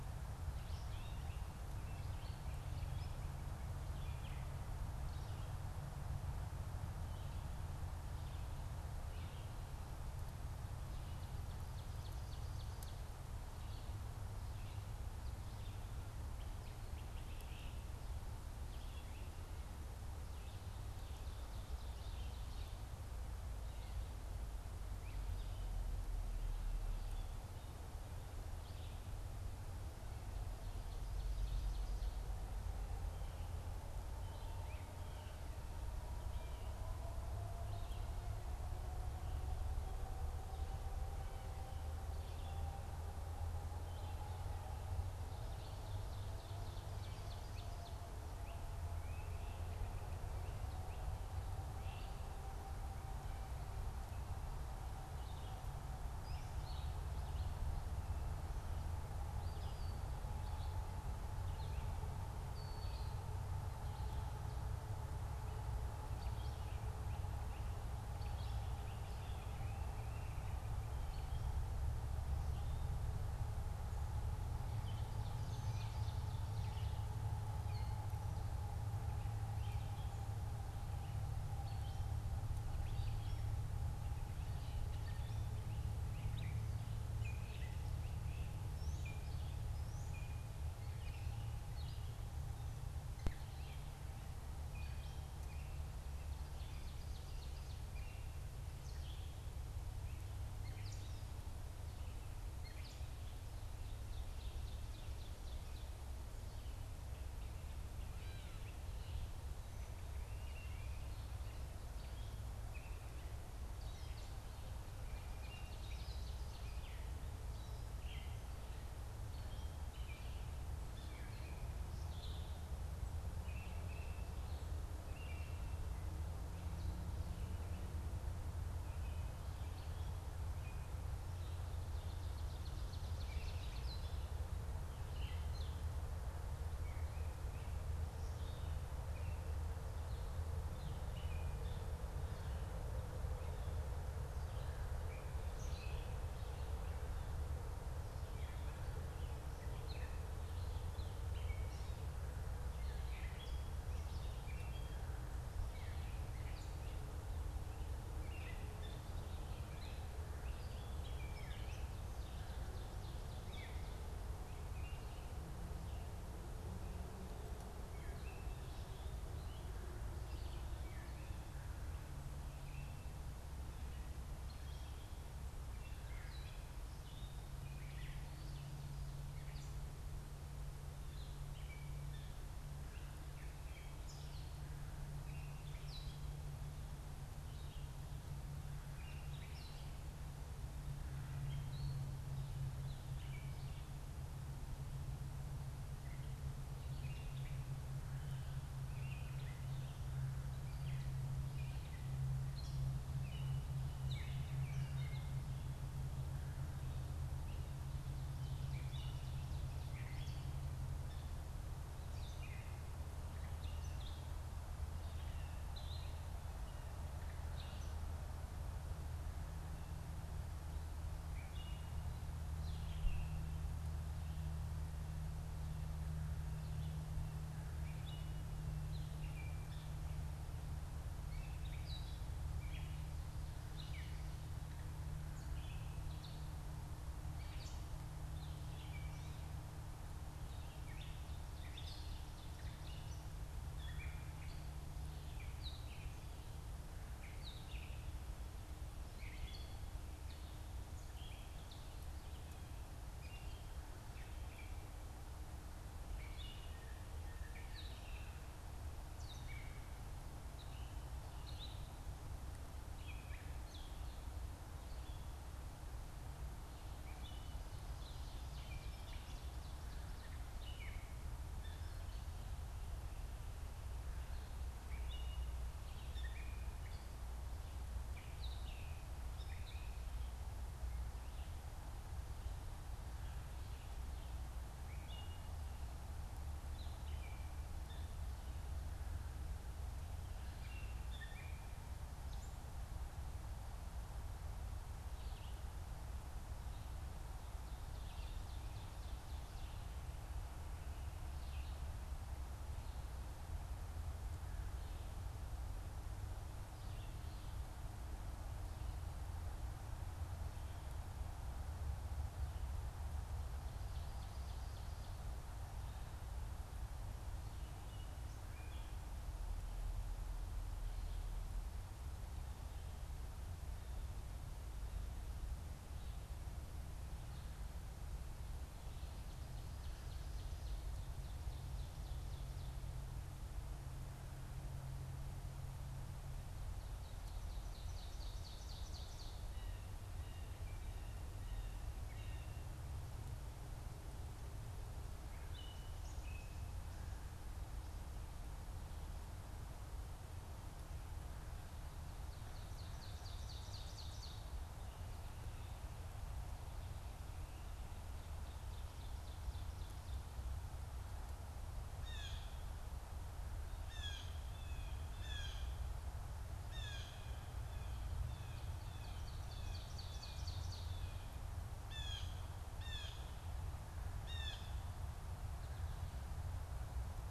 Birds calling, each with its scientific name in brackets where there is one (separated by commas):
Gray Catbird (Dumetella carolinensis), Great Crested Flycatcher (Myiarchus crinitus), Red-eyed Vireo (Vireo olivaceus), Red-winged Blackbird (Agelaius phoeniceus), Blue Jay (Cyanocitta cristata), Ovenbird (Seiurus aurocapilla)